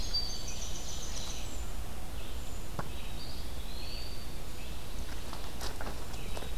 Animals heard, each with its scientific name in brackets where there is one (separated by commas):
Black-capped Chickadee (Poecile atricapillus), Winter Wren (Troglodytes hiemalis), Eastern Wood-Pewee (Contopus virens), Red-eyed Vireo (Vireo olivaceus), Pine Warbler (Setophaga pinus), Ovenbird (Seiurus aurocapilla)